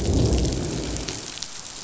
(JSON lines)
{"label": "biophony, growl", "recorder": "SoundTrap 500"}